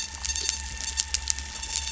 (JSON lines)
{"label": "anthrophony, boat engine", "recorder": "SoundTrap 300"}